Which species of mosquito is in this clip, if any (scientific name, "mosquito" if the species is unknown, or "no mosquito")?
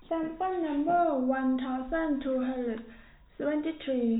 no mosquito